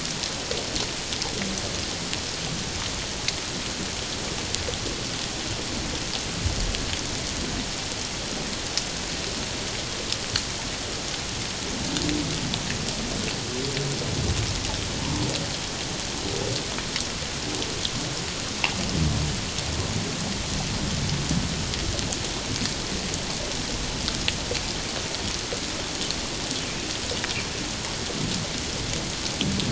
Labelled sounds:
15.0	15.3	humpback whale, 0.84 to 1.1 kHz

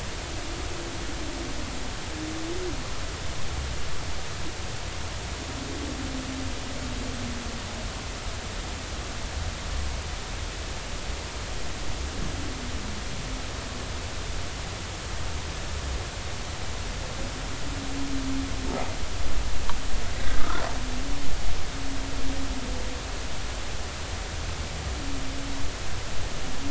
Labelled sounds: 20.3	20.6	humpback whale, 1.2 to 1.5 kHz

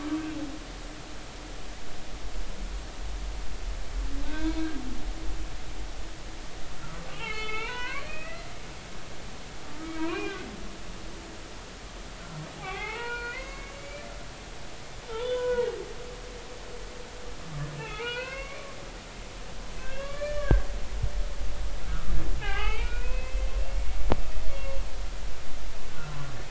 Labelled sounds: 4.3	4.7	humpback whale, 0.90 to 4.3 kHz
7.1	8.5	humpback whale, 0.83 to 3.6 kHz
9.8	10.5	humpback whale, 0.90 to 2.9 kHz
12.5	14.0	humpback whale, 0.80 to 4.4 kHz
15.2	15.7	humpback whale, 0.86 to 3.6 kHz
17.8	18.7	humpback whale, 0.83 to 4.4 kHz
19.8	20.7	humpback whale, 1.1 to 6.6 kHz
22.4	23.4	humpback whale, 0.80 to 3.3 kHz
23.7	24.0	humpback whale, 2.1 to 2.3 kHz
24.5	24.8	humpback whale, 1.0 to 2.8 kHz
25.9	26.2	humpback whale, 1.3 to 1.5 kHz

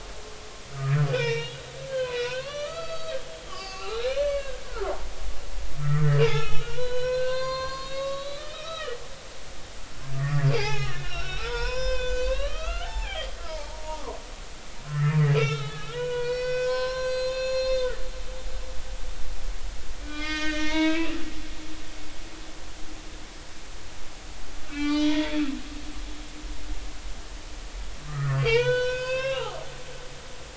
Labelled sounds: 1.1	5.1	humpback whale, 0.80 to 6.6 kHz
5.8	9.0	humpback whale, 0.90 to 6.0 kHz
10.1	14.2	humpback whale, 0.80 to 7.2 kHz
14.9	17.9	humpback whale, 0.93 to 7.7 kHz
20.0	21.5	humpback whale, 0.86 to 6.0 kHz
24.7	25.4	humpback whale, 0.83 to 5.2 kHz
28.1	29.5	humpback whale, 0.80 to 6.9 kHz

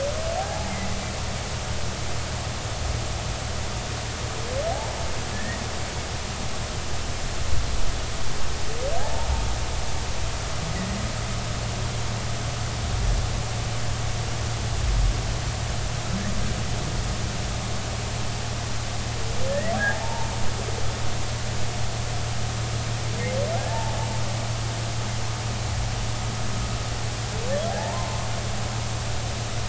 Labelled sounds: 0.4	0.7	humpback whale, 0.80 to 0.93 kHz
4.7	5.0	humpback whale, 0.80 to 1.0 kHz
5.3	5.6	humpback whale, 1.7 to 2.0 kHz
19.5	20.3	humpback whale, 0.80 to 2.2 kHz
23.7	24.0	humpback whale, 0.80 to 0.96 kHz
27.8	28.3	humpback whale, 0.80 to 1.2 kHz

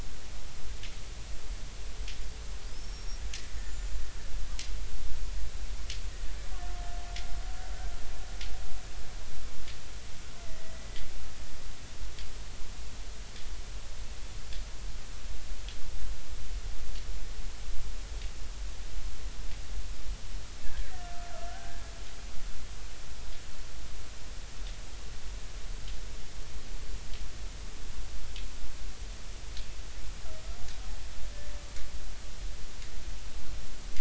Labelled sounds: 2.7	3.2	killer whale, Bigg's (transient), 4.8 to 5.7 kHz
3.6	4.0	killer whale, Bigg's (transient), 6.8 to 7.2 kHz
10.4	10.9	killer whale, Bigg's (transient), 1.9 to 2.1 kHz
21.0	21.9	killer whale, Bigg's (transient), 1.2 to 1.7 kHz

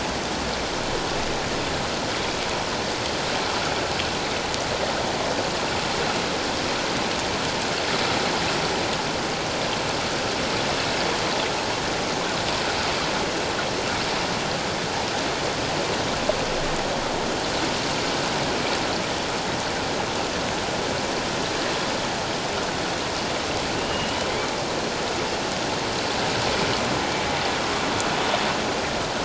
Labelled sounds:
23.8	24.2	humpback whale, 2.6 to 3.0 kHz

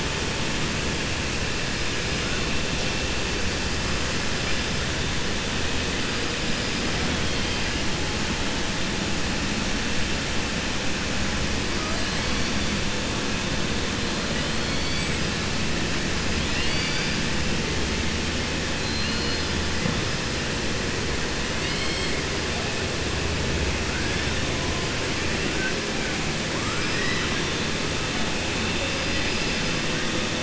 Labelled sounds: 16.4	17.2	killer whale, 1.5 to 5.1 kHz
18.7	19.5	killer whale, 2.7 to 5.1 kHz
26.5	27.4	killer whale, 1.1 to 5.1 kHz

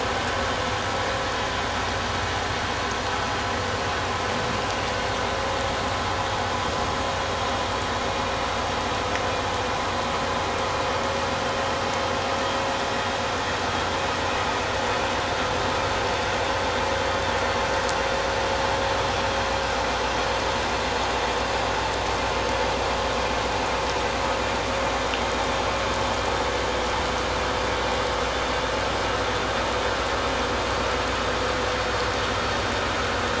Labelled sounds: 18.1	18.4	vessel noise, 5.6 to 5.7 kHz

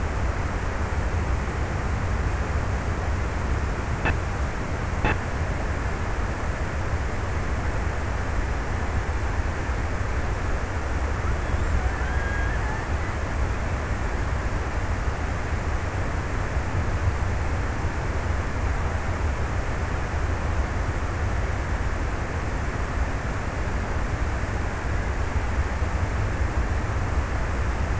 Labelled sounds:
10.9	13.3	killer whale, Bigg's (transient), 0.43 to 2.2 kHz

